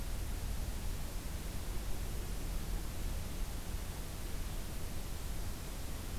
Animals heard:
forest ambience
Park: Acadia National Park